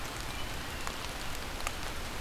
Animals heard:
forest ambience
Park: Marsh-Billings-Rockefeller National Historical Park